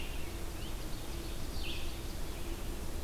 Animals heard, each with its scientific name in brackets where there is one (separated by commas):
Ovenbird (Seiurus aurocapilla), Red-eyed Vireo (Vireo olivaceus)